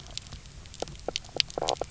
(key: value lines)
label: biophony, knock croak
recorder: SoundTrap 300